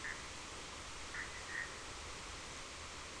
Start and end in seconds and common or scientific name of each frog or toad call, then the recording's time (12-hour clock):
0.0	1.7	Bischoff's tree frog
2:15am